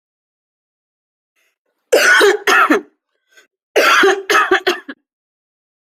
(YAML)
expert_labels:
- quality: ok
  cough_type: dry
  dyspnea: false
  wheezing: false
  stridor: false
  choking: false
  congestion: false
  nothing: true
  diagnosis: lower respiratory tract infection
  severity: mild
age: 35
gender: female
respiratory_condition: false
fever_muscle_pain: true
status: symptomatic